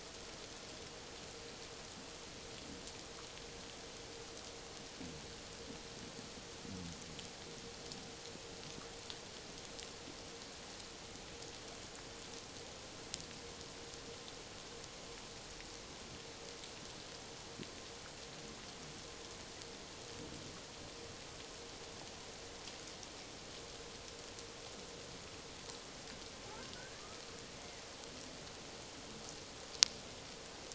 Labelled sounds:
26.8	27.2	killer whale, Bigg's (transient), 1.1 to 1.8 kHz

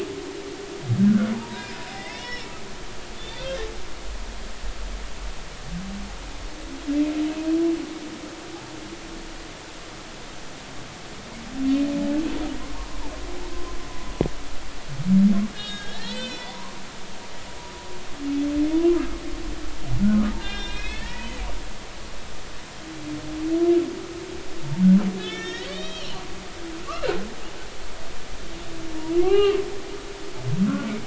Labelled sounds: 1.3	2.5	humpback whale, 0.80 to 5.6 kHz
3.2	3.5	humpback whale, 3.4 to 3.7 kHz
12.7	13.0	humpback whale, 0.90 to 1.2 kHz
15.5	17.6	humpback whale, 0.90 to 5.7 kHz
18.7	19.2	humpback whale, 0.93 to 1.4 kHz
20.1	21.4	humpback whale, 0.90 to 4.2 kHz
25.2	27.2	humpback whale, 1.2 to 6.9 kHz
29.2	29.6	humpback whale, 0.80 to 4.2 kHz

